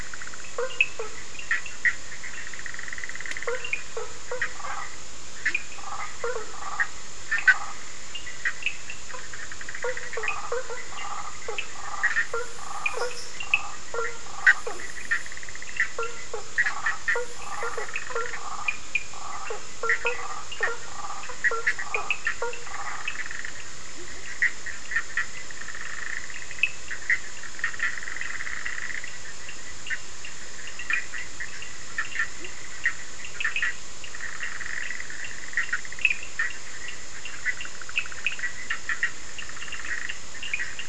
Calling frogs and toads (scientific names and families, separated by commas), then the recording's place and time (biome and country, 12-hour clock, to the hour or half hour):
Boana faber (Hylidae), Sphaenorhynchus surdus (Hylidae), Boana prasina (Hylidae), Leptodactylus latrans (Leptodactylidae)
Atlantic Forest, Brazil, 1am